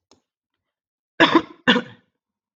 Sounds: Cough